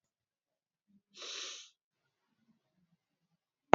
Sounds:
Sniff